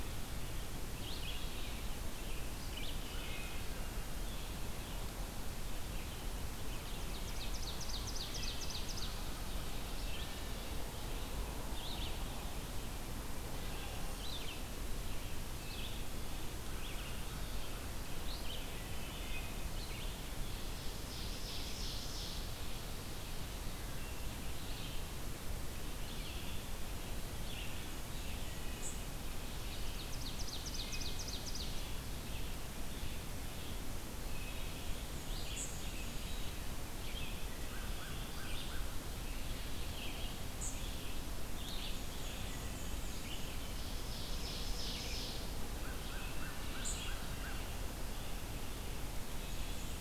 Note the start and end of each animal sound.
[0.00, 26.77] Red-eyed Vireo (Vireo olivaceus)
[3.03, 3.64] Wood Thrush (Hylocichla mustelina)
[6.76, 9.29] Ovenbird (Seiurus aurocapilla)
[8.23, 9.06] Wood Thrush (Hylocichla mustelina)
[10.02, 10.96] Wood Thrush (Hylocichla mustelina)
[18.93, 19.66] Wood Thrush (Hylocichla mustelina)
[20.75, 22.65] Ovenbird (Seiurus aurocapilla)
[23.73, 24.27] Wood Thrush (Hylocichla mustelina)
[27.27, 50.00] Red-eyed Vireo (Vireo olivaceus)
[28.36, 29.03] Wood Thrush (Hylocichla mustelina)
[29.58, 31.88] Ovenbird (Seiurus aurocapilla)
[30.59, 31.33] Wood Thrush (Hylocichla mustelina)
[34.28, 34.82] Wood Thrush (Hylocichla mustelina)
[37.61, 39.31] American Crow (Corvus brachyrhynchos)
[41.82, 43.54] Black-and-white Warbler (Mniotilta varia)
[42.70, 43.20] Wood Thrush (Hylocichla mustelina)
[43.53, 45.83] Ovenbird (Seiurus aurocapilla)
[45.53, 47.78] American Crow (Corvus brachyrhynchos)
[49.34, 50.00] Black-and-white Warbler (Mniotilta varia)

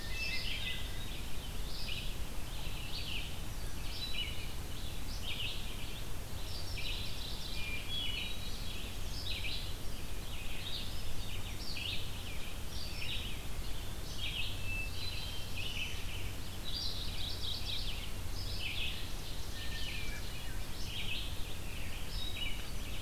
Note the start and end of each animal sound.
[0.00, 0.61] Ovenbird (Seiurus aurocapilla)
[0.00, 1.27] Hermit Thrush (Catharus guttatus)
[0.00, 23.01] Red-eyed Vireo (Vireo olivaceus)
[6.46, 7.83] Mourning Warbler (Geothlypis philadelphia)
[7.47, 8.71] Hermit Thrush (Catharus guttatus)
[14.41, 15.47] Hermit Thrush (Catharus guttatus)
[14.61, 16.11] Black-throated Blue Warbler (Setophaga caerulescens)
[16.63, 18.21] Mourning Warbler (Geothlypis philadelphia)
[18.64, 20.40] Ovenbird (Seiurus aurocapilla)
[19.52, 20.68] Hermit Thrush (Catharus guttatus)
[21.99, 22.82] Hermit Thrush (Catharus guttatus)

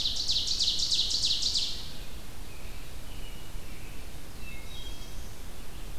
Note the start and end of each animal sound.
[0.00, 1.95] Ovenbird (Seiurus aurocapilla)
[2.33, 4.07] American Robin (Turdus migratorius)
[4.00, 5.48] Black-throated Blue Warbler (Setophaga caerulescens)
[4.27, 5.26] Wood Thrush (Hylocichla mustelina)

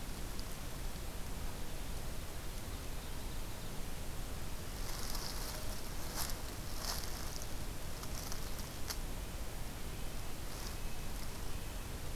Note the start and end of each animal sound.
[2.42, 3.94] Ovenbird (Seiurus aurocapilla)
[9.79, 12.15] Red-breasted Nuthatch (Sitta canadensis)

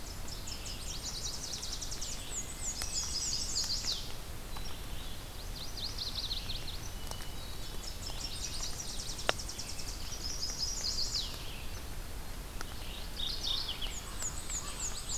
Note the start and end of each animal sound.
[0.00, 2.27] Tennessee Warbler (Leiothlypis peregrina)
[0.00, 15.18] Red-eyed Vireo (Vireo olivaceus)
[0.59, 1.52] Yellow-rumped Warbler (Setophaga coronata)
[1.82, 3.84] Black-and-white Warbler (Mniotilta varia)
[2.61, 4.05] Chestnut-sided Warbler (Setophaga pensylvanica)
[5.15, 6.95] Yellow-rumped Warbler (Setophaga coronata)
[6.75, 8.03] Hermit Thrush (Catharus guttatus)
[7.55, 10.15] Tennessee Warbler (Leiothlypis peregrina)
[7.99, 9.12] Yellow-rumped Warbler (Setophaga coronata)
[9.57, 11.32] Chestnut-sided Warbler (Setophaga pensylvanica)
[12.90, 14.00] Mourning Warbler (Geothlypis philadelphia)
[13.67, 15.18] Black-and-white Warbler (Mniotilta varia)
[14.64, 15.18] Yellow-rumped Warbler (Setophaga coronata)

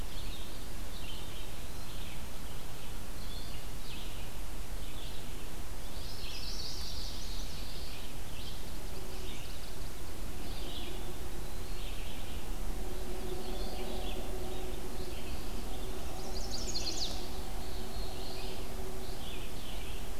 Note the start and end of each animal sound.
[0.00, 20.19] Red-eyed Vireo (Vireo olivaceus)
[0.93, 2.20] Eastern Wood-Pewee (Contopus virens)
[5.96, 7.75] Chestnut-sided Warbler (Setophaga pensylvanica)
[6.76, 8.06] Black-throated Blue Warbler (Setophaga caerulescens)
[8.52, 9.97] Chestnut-sided Warbler (Setophaga pensylvanica)
[10.44, 11.94] Eastern Wood-Pewee (Contopus virens)
[15.23, 16.53] Eastern Wood-Pewee (Contopus virens)
[16.16, 17.42] Chestnut-sided Warbler (Setophaga pensylvanica)
[17.53, 18.67] Black-throated Blue Warbler (Setophaga caerulescens)

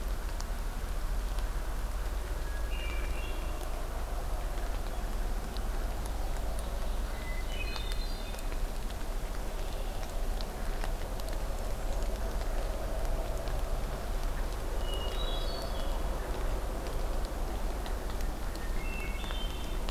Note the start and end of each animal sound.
[2.20, 3.59] Hermit Thrush (Catharus guttatus)
[5.87, 7.65] Ovenbird (Seiurus aurocapilla)
[7.33, 8.61] Hermit Thrush (Catharus guttatus)
[9.30, 10.07] Red-winged Blackbird (Agelaius phoeniceus)
[11.45, 12.39] Hermit Thrush (Catharus guttatus)
[14.69, 16.11] Hermit Thrush (Catharus guttatus)
[18.47, 19.91] Hermit Thrush (Catharus guttatus)

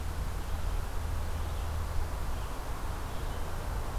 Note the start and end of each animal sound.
[0.33, 3.98] Red-eyed Vireo (Vireo olivaceus)

